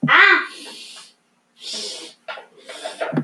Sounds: Sniff